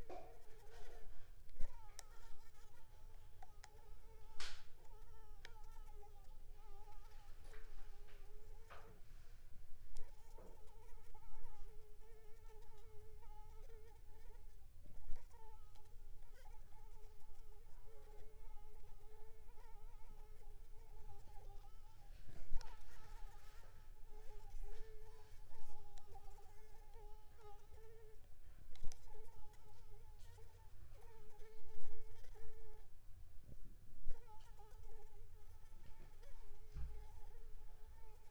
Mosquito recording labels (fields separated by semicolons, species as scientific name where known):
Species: Anopheles squamosus; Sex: female; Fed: unfed; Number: one; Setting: cup